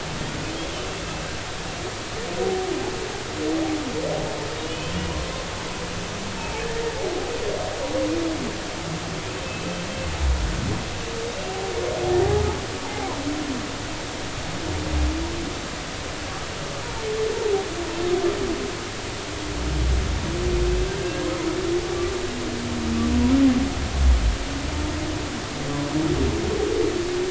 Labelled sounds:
4.6	4.9	humpback whale, 2.8 to 3.1 kHz
9.5	9.8	humpback whale, 2.5 to 2.7 kHz
12.8	13.1	humpback whale, 0.80 to 0.93 kHz
21.0	21.2	humpback whale, 1.6 to 1.7 kHz

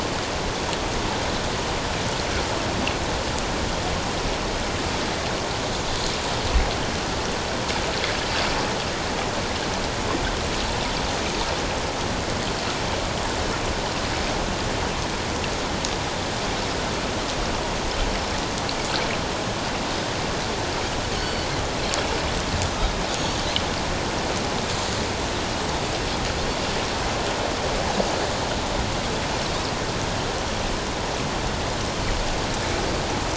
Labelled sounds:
21.1	21.5	Pacific white-sided dolphin, 2.9 to 4.6 kHz

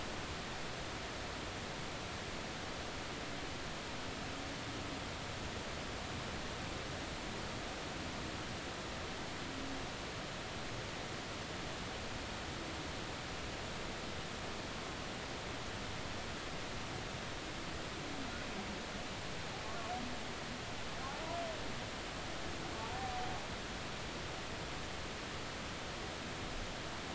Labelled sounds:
19.6	19.9	humpback whale, 1.1 to 1.2 kHz

